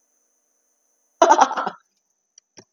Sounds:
Laughter